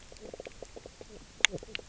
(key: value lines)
label: biophony, knock croak
recorder: SoundTrap 300